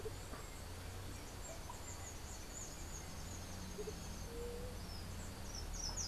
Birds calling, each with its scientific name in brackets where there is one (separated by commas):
unidentified bird, Andean Motmot (Momotus aequatorialis), Slate-throated Redstart (Myioborus miniatus), White-tipped Dove (Leptotila verreauxi), Russet-backed Oropendola (Psarocolius angustifrons)